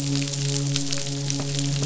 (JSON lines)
{"label": "biophony, midshipman", "recorder": "SoundTrap 500"}